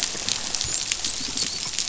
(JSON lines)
{"label": "biophony, dolphin", "recorder": "SoundTrap 500"}